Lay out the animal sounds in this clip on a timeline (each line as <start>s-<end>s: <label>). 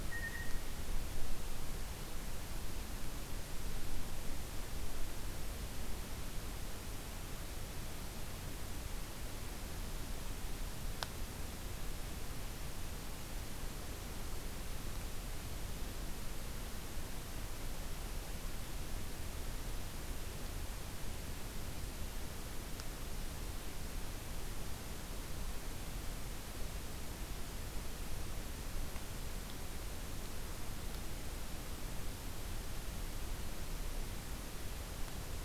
0.0s-0.9s: Blue Jay (Cyanocitta cristata)